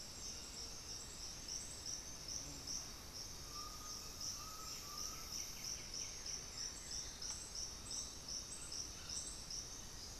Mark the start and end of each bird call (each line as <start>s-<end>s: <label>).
3.3s-5.5s: Undulated Tinamou (Crypturellus undulatus)
4.4s-10.2s: White-winged Becard (Pachyramphus polychopterus)
6.8s-7.4s: unidentified bird
9.5s-10.2s: Black-faced Antthrush (Formicarius analis)